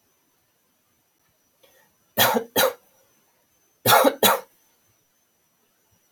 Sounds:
Cough